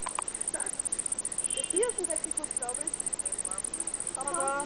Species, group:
Decticus albifrons, Orthoptera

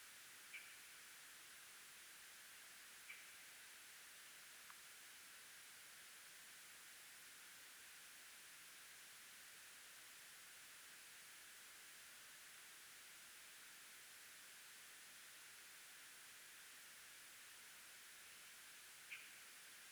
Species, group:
Barbitistes serricauda, Orthoptera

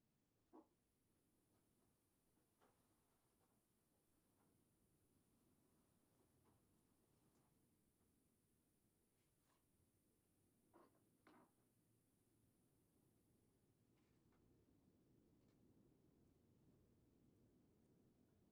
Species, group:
Isophya tosevski, Orthoptera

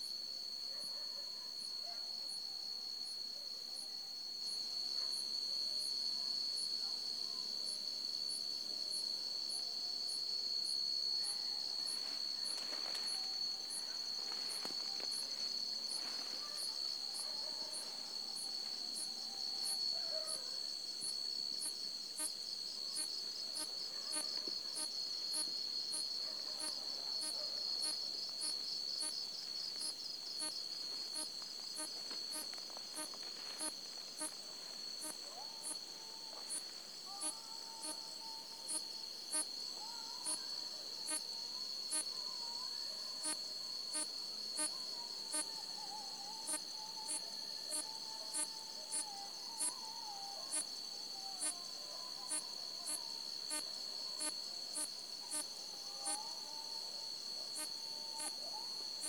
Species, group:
Hexacentrus unicolor, Orthoptera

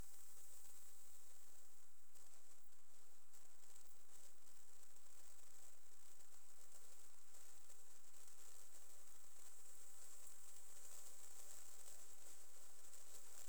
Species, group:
Platycleis albopunctata, Orthoptera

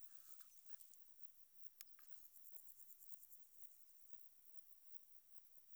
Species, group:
Metrioptera saussuriana, Orthoptera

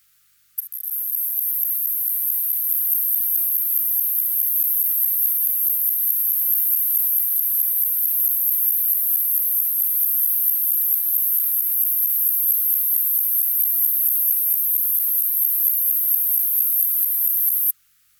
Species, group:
Pycnogaster jugicola, Orthoptera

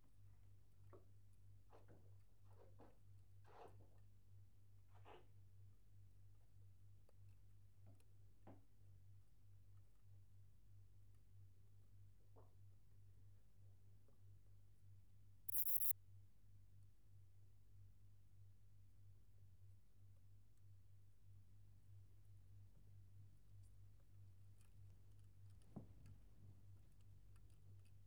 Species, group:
Ephippigerida areolaria, Orthoptera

